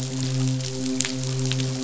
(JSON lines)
{"label": "biophony, midshipman", "recorder": "SoundTrap 500"}